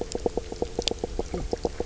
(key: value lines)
label: biophony, knock croak
recorder: SoundTrap 300